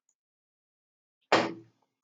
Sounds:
Laughter